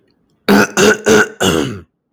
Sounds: Throat clearing